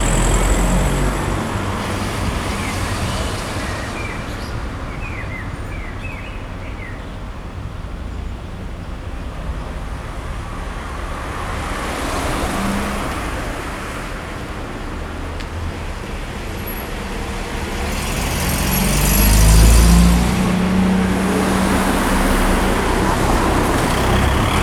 Is this taking place outdoors?
yes